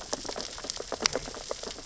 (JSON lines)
{"label": "biophony, sea urchins (Echinidae)", "recorder": "SoundTrap 600 or HydroMoth"}